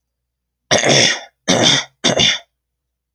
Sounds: Throat clearing